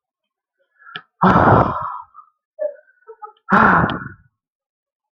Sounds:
Sigh